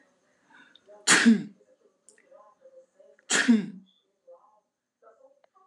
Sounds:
Sneeze